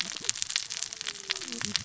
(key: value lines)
label: biophony, cascading saw
recorder: SoundTrap 600 or HydroMoth